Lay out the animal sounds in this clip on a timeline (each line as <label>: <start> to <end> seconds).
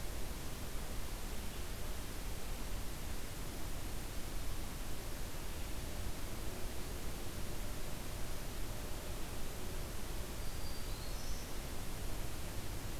Black-throated Green Warbler (Setophaga virens): 10.2 to 11.6 seconds